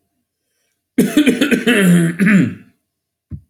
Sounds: Cough